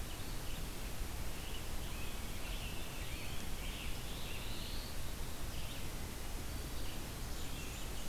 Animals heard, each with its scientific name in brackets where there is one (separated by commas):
Rose-breasted Grosbeak (Pheucticus ludovicianus), Blackburnian Warbler (Setophaga fusca), Black-throated Blue Warbler (Setophaga caerulescens), Red-eyed Vireo (Vireo olivaceus)